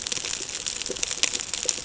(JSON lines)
{"label": "ambient", "recorder": "HydroMoth"}